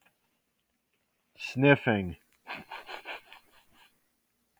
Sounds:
Sniff